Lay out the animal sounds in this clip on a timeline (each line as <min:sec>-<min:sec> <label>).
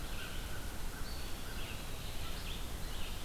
0:00.0-0:01.8 American Crow (Corvus brachyrhynchos)
0:00.0-0:03.2 Red-eyed Vireo (Vireo olivaceus)
0:00.9-0:02.3 Eastern Wood-Pewee (Contopus virens)